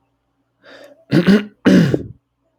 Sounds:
Throat clearing